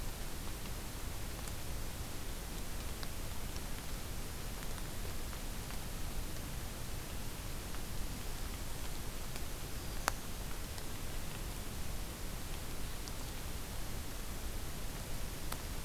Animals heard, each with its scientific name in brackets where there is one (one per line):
Black-throated Green Warbler (Setophaga virens)